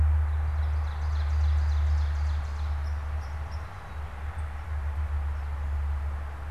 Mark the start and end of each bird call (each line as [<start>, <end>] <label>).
[0.30, 2.70] Ovenbird (Seiurus aurocapilla)
[2.70, 3.70] White-throated Sparrow (Zonotrichia albicollis)